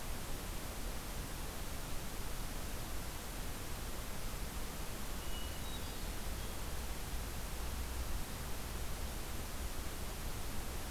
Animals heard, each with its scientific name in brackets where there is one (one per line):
Hermit Thrush (Catharus guttatus)